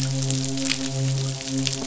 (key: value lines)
label: biophony, midshipman
recorder: SoundTrap 500